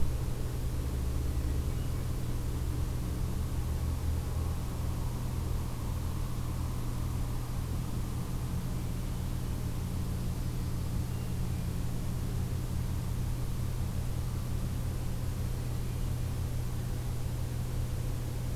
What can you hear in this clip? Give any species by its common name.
Hermit Thrush